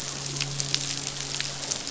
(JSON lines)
{"label": "biophony, midshipman", "recorder": "SoundTrap 500"}